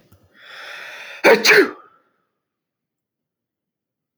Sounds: Sneeze